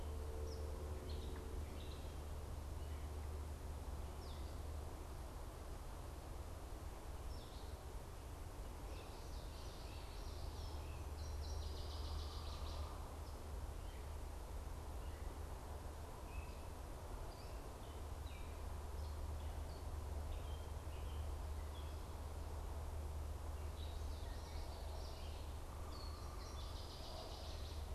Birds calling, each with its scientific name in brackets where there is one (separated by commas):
Great Crested Flycatcher (Myiarchus crinitus), Common Yellowthroat (Geothlypis trichas), Gray Catbird (Dumetella carolinensis), Northern Waterthrush (Parkesia noveboracensis), unidentified bird